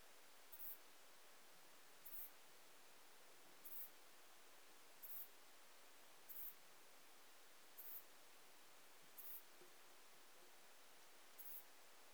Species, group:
Metrioptera saussuriana, Orthoptera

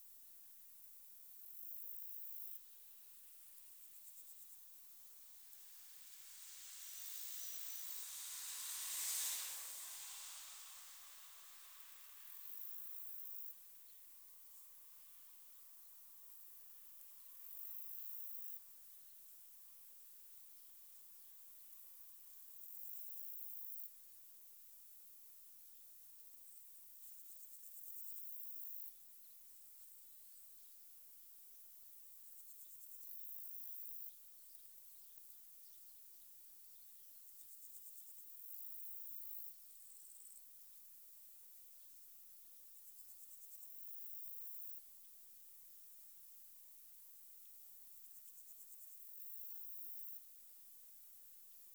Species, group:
Metaplastes ornatus, Orthoptera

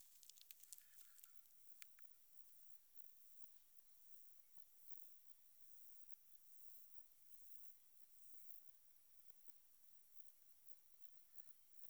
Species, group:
Myrmeleotettix maculatus, Orthoptera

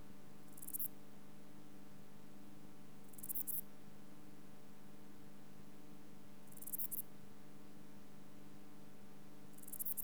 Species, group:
Albarracinia zapaterii, Orthoptera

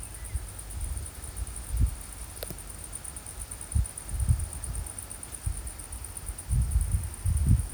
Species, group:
Decticus albifrons, Orthoptera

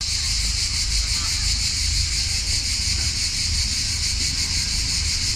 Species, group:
Cicada orni, Cicadidae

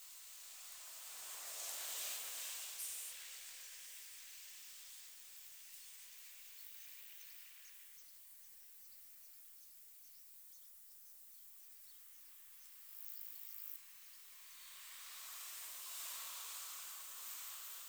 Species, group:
Metaplastes ornatus, Orthoptera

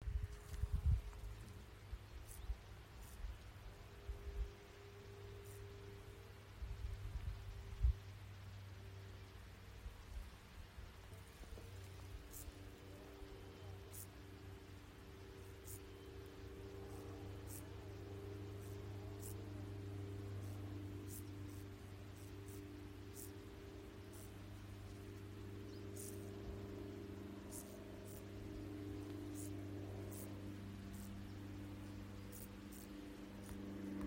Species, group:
Chorthippus brunneus, Orthoptera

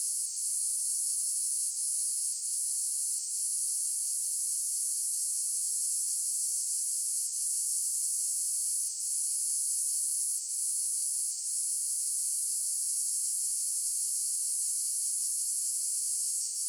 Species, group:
Cicadatra atra, Cicadidae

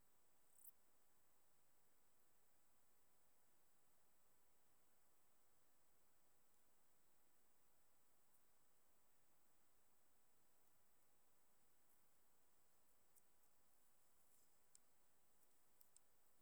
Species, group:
Lluciapomaresius stalii, Orthoptera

